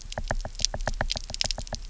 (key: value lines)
label: biophony, knock
recorder: SoundTrap 300